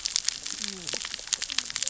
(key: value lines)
label: biophony, cascading saw
recorder: SoundTrap 600 or HydroMoth